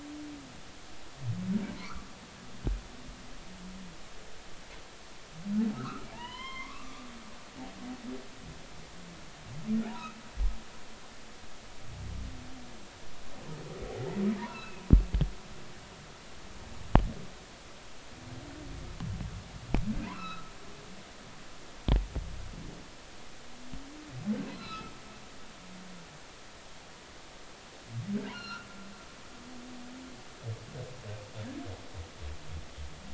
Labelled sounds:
1.8	2.1	humpback whale, 0.96 to 1.5 kHz
5.7	7.8	humpback whale, 0.83 to 3.3 kHz
9.8	10.1	humpback whale, 0.80 to 1.0 kHz
14.4	14.8	humpback whale, 0.86 to 2.8 kHz
20.0	20.5	humpback whale, 0.90 to 4.1 kHz
24.5	24.9	humpback whale, 1.2 to 4.3 kHz
28.3	28.7	humpback whale, 1.2 to 5.7 kHz

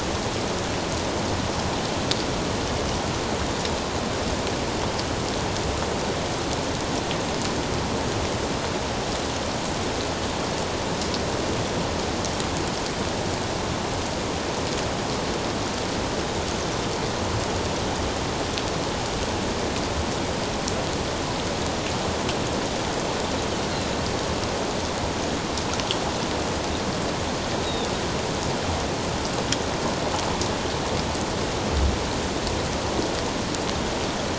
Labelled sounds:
27.6	27.9	Pacific white-sided dolphin, 3.4 to 4.0 kHz

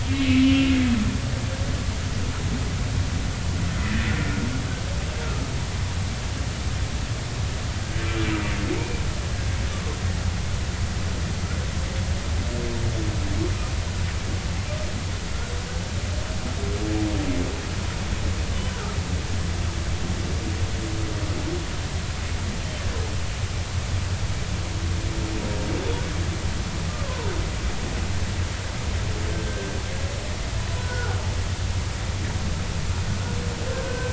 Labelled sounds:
0.0	0.7	humpback whale, 2.1 to 3.3 kHz
8.7	9.0	humpback whale, 2.1 to 2.5 kHz
18.7	19.0	humpback whale, 1.2 to 1.6 kHz
29.3	29.7	humpback whale, 1.5 to 1.7 kHz
30.8	31.2	humpback whale, 1.3 to 1.5 kHz
33.8	34.1	humpback whale, 1.5 to 1.6 kHz

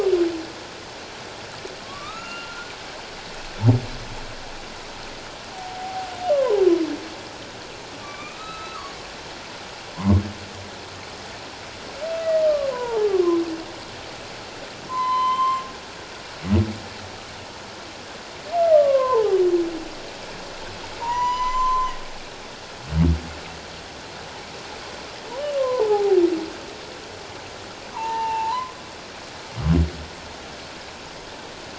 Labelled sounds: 1.8	2.7	humpback whale, 1.1 to 7.1 kHz
5.5	6.6	humpback whale, 0.78 to 1.2 kHz
8.0	8.9	humpback whale, 1.0 to 4.0 kHz
10.0	10.2	humpback whale, 0.94 to 1.2 kHz
12.7	13.2	humpback whale, 0.78 to 1.7 kHz
14.9	15.6	humpback whale, 0.88 to 7.4 kHz
18.7	19.4	humpback whale, 0.78 to 1.6 kHz
21.0	21.9	humpback whale, 0.88 to 7.2 kHz
25.6	26.2	humpback whale, 0.78 to 1.2 kHz
27.9	28.8	humpback whale, 0.78 to 2.8 kHz

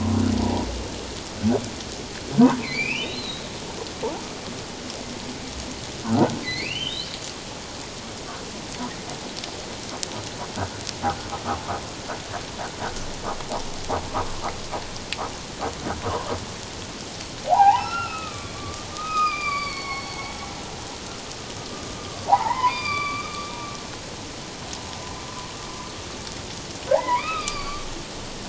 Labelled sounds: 2.6	3.5	humpback whale, 2.0 to 4.2 kHz
6.4	7.1	humpback whale, 1.9 to 4.7 kHz
17.5	20.2	humpback whale, 0.78 to 5.6 kHz
22.3	23.5	humpback whale, 0.78 to 4.8 kHz
26.9	27.9	humpback whale, 0.78 to 5.0 kHz

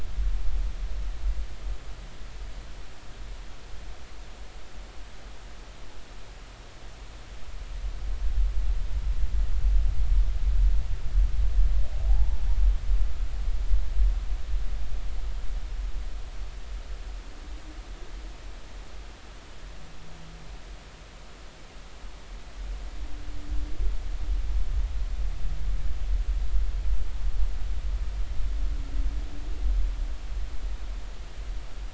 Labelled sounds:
12.1	12.4	humpback whale, 0.80 to 0.99 kHz

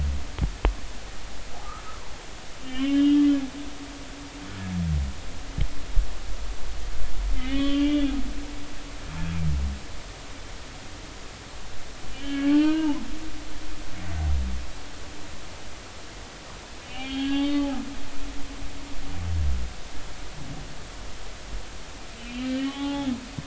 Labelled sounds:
1.9	3.3	humpback whale, 0.90 to 3.8 kHz
7.4	8.1	humpback whale, 1.1 to 3.5 kHz
12.1	13.0	humpback whale, 0.83 to 3.2 kHz
16.9	18.6	humpback whale, 0.80 to 3.8 kHz
22.2	23.1	humpback whale, 0.80 to 3.4 kHz

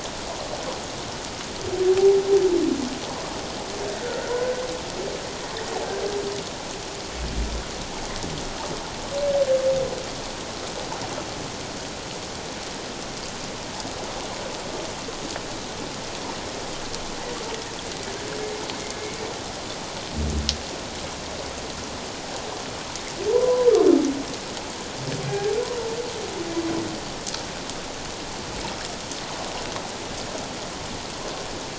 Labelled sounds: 23.3	23.7	humpback whale, 0.88 to 1.1 kHz
25.3	25.5	humpback whale, 1.6 to 1.7 kHz

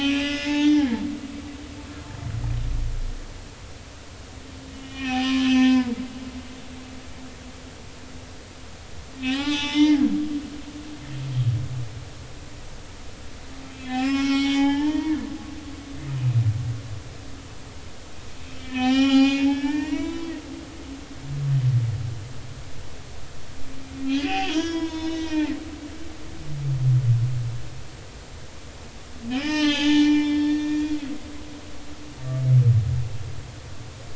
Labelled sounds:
4.7	6.0	humpback whale, 0.86 to 3.7 kHz
9.2	10.1	humpback whale, 0.80 to 5.5 kHz
13.7	15.3	humpback whale, 0.80 to 5.7 kHz
18.5	20.3	humpback whale, 0.80 to 7.2 kHz
24.2	25.5	humpback whale, 0.83 to 6.5 kHz
29.3	31.0	humpback whale, 0.80 to 6.2 kHz

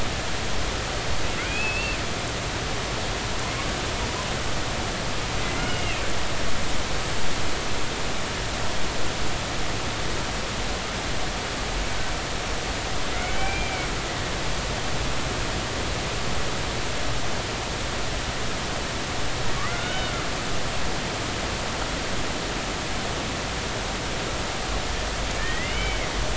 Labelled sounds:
1.5	2.0	humpback whale, 2.3 to 2.8 kHz
5.6	6.1	humpback whale, 2.3 to 3.0 kHz
13.1	13.9	humpback whale, 1.3 to 2.4 kHz
19.7	20.1	humpback whale, 1.3 to 3.8 kHz
25.4	26.1	humpback whale, 1.7 to 3.1 kHz

